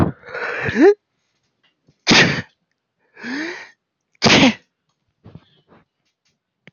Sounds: Sneeze